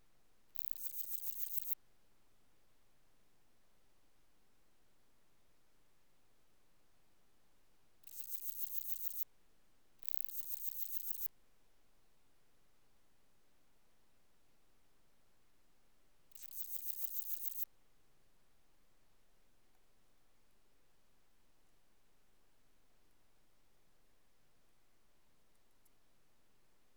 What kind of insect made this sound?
orthopteran